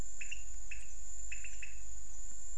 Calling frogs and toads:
Leptodactylus podicipinus (Leptodactylidae)
Cerrado, 6:30pm

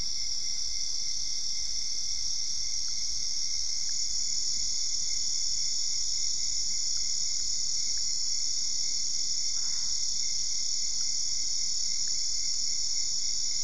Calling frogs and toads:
Boana albopunctata (Hylidae)
Cerrado, 10:30pm

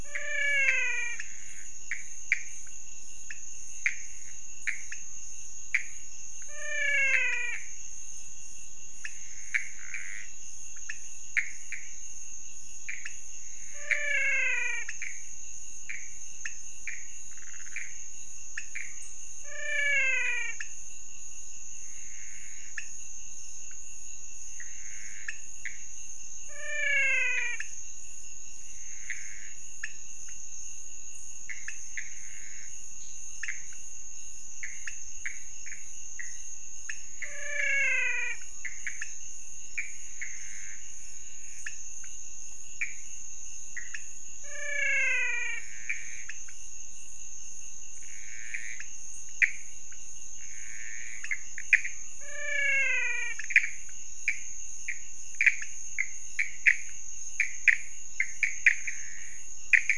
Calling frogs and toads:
Physalaemus albonotatus (Leptodactylidae), Leptodactylus podicipinus (Leptodactylidae), Pithecopus azureus (Hylidae)
Cerrado, 2:30am

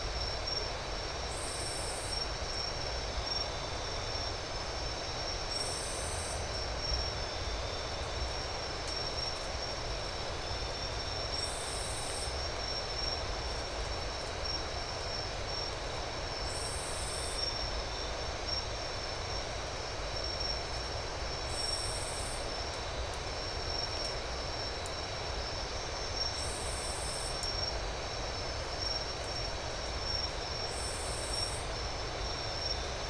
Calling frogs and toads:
none
Atlantic Forest, 3:15am

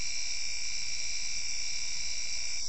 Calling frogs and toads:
none
Cerrado, 9:15pm

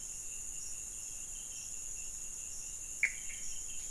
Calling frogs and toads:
Pithecopus azureus (Hylidae)
Cerrado, 12:30am

